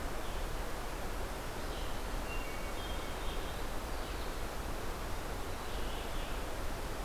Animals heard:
Hermit Thrush (Catharus guttatus)

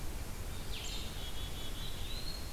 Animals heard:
Eastern Wood-Pewee (Contopus virens)
Blue-headed Vireo (Vireo solitarius)
Red-eyed Vireo (Vireo olivaceus)
unidentified call
Black-capped Chickadee (Poecile atricapillus)

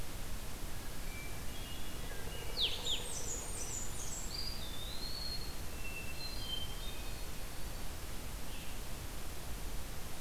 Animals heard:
Eastern Wood-Pewee (Contopus virens)
Blackburnian Warbler (Setophaga fusca)
Hermit Thrush (Catharus guttatus)
Blue-headed Vireo (Vireo solitarius)

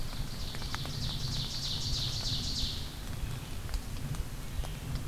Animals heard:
Ovenbird (Seiurus aurocapilla)
Ruffed Grouse (Bonasa umbellus)

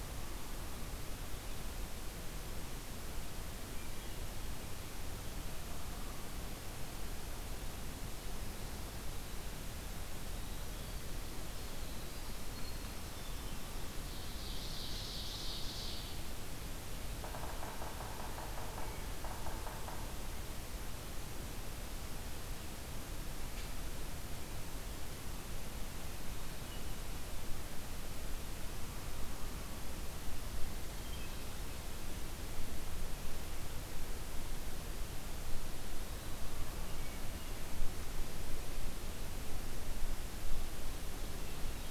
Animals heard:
Yellow-bellied Sapsucker (Sphyrapicus varius)
Ovenbird (Seiurus aurocapilla)
Winter Wren (Troglodytes hiemalis)

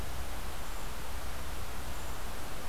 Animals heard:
Brown Creeper (Certhia americana)

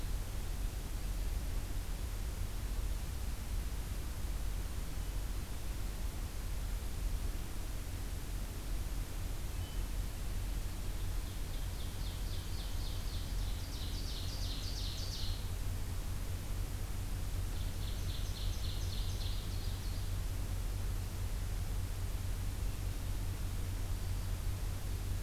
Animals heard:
Ovenbird (Seiurus aurocapilla)
Hermit Thrush (Catharus guttatus)
Black-throated Green Warbler (Setophaga virens)

